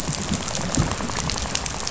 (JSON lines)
{"label": "biophony, rattle", "recorder": "SoundTrap 500"}